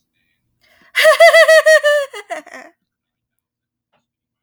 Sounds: Laughter